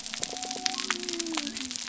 {"label": "biophony", "recorder": "SoundTrap 300"}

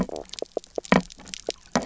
{"label": "biophony, knock croak", "recorder": "SoundTrap 300"}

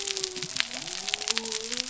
{"label": "biophony", "recorder": "SoundTrap 300"}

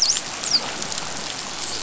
{"label": "biophony, dolphin", "recorder": "SoundTrap 500"}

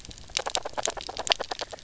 {"label": "biophony, knock croak", "recorder": "SoundTrap 300"}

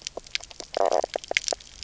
{"label": "biophony, knock croak", "recorder": "SoundTrap 300"}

